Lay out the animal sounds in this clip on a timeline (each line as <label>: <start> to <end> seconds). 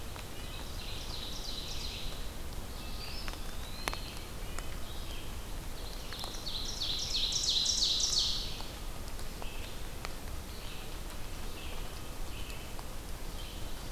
Red-breasted Nuthatch (Sitta canadensis): 0.0 to 1.0 seconds
Red-eyed Vireo (Vireo olivaceus): 0.0 to 13.9 seconds
Ovenbird (Seiurus aurocapilla): 0.0 to 2.4 seconds
Eastern Wood-Pewee (Contopus virens): 2.6 to 4.6 seconds
Red-breasted Nuthatch (Sitta canadensis): 3.6 to 4.8 seconds
Ovenbird (Seiurus aurocapilla): 5.5 to 8.7 seconds